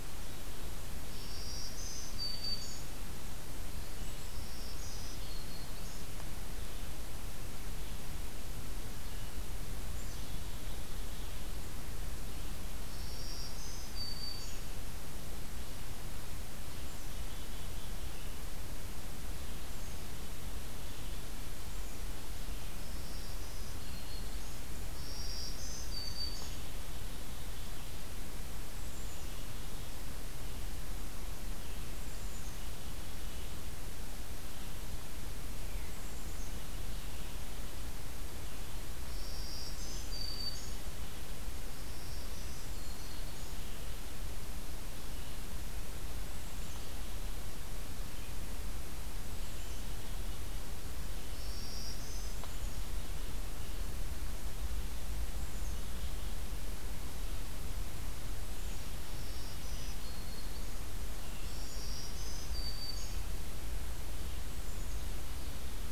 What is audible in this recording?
Red-eyed Vireo, Black-throated Green Warbler, Black-capped Chickadee